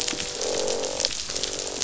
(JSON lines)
{"label": "biophony, croak", "recorder": "SoundTrap 500"}